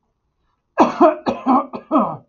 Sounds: Cough